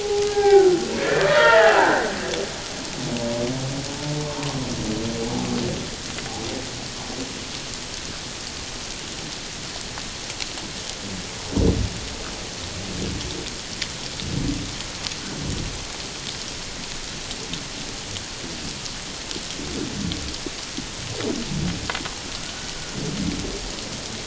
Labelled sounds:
0.0	2.1	humpback whale, 0.78 to 3.4 kHz

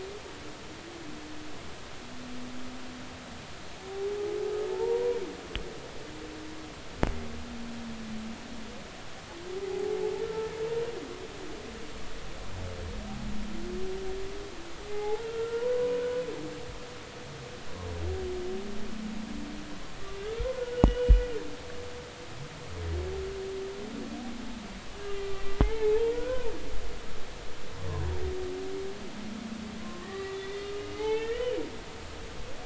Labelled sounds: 4.7	5.2	humpback whale, 0.83 to 1.0 kHz
10.2	10.5	humpback whale, 1.3 to 1.4 kHz
14.9	16.1	humpback whale, 0.80 to 2.2 kHz
20.6	21.2	humpback whale, 1.3 to 3.0 kHz
25.6	26.5	humpback whale, 0.80 to 2.3 kHz
29.8	31.6	humpback whale, 0.80 to 3.7 kHz

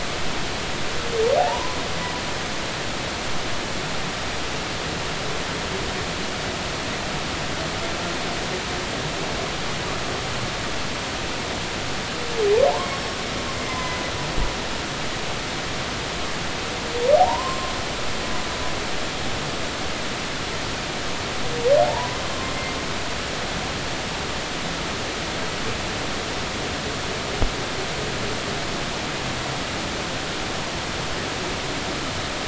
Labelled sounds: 1.4	1.8	humpback whale, 0.80 to 1.1 kHz
12.6	12.9	humpback whale, 0.80 to 1.2 kHz
13.7	14.0	humpback whale, 0.96 to 1.1 kHz
17.2	17.7	humpback whale, 0.80 to 1.1 kHz
21.9	22.2	humpback whale, 0.83 to 1.1 kHz

